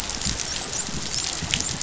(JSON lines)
{"label": "biophony, dolphin", "recorder": "SoundTrap 500"}